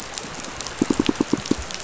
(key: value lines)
label: biophony, pulse
recorder: SoundTrap 500